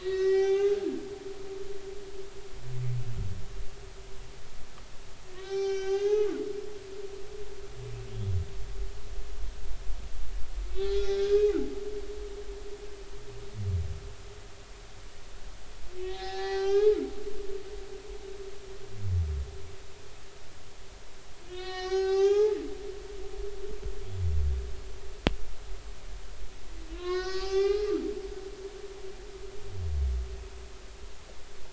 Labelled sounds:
0.0	0.8	humpback whale, 0.80 to 6.8 kHz
1.2	1.6	humpback whale, 3.4 to 3.6 kHz
5.3	6.6	humpback whale, 0.80 to 6.7 kHz
10.8	11.5	humpback whale, 1.3 to 5.7 kHz
16.0	17.0	humpback whale, 0.80 to 6.4 kHz
21.4	22.6	humpback whale, 0.80 to 6.9 kHz
26.9	27.9	humpback whale, 0.80 to 6.5 kHz

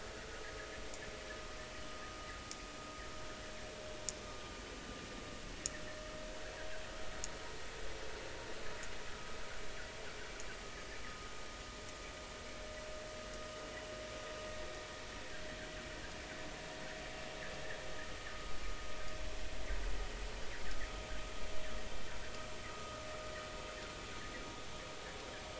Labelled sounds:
4.3	4.6	vessel noise, 1.0 to 1.2 kHz
22.7	23.0	vessel noise, 1.2 to 1.3 kHz

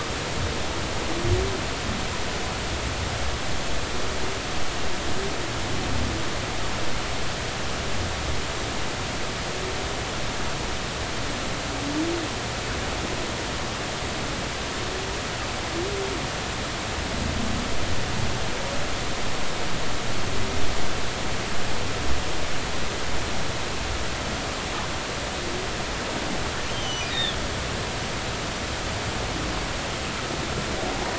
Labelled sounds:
26.7	27.4	humpback whale, 2.9 to 6.2 kHz

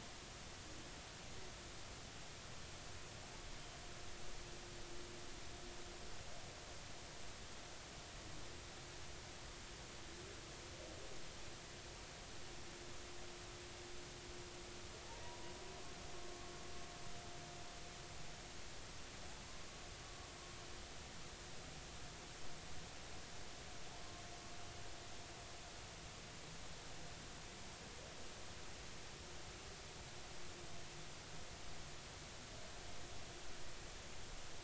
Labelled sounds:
15.2	15.5	humpback whale, 0.93 to 1.0 kHz

